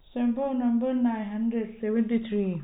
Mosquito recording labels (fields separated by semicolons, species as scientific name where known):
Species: no mosquito; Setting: cup